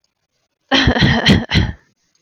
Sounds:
Cough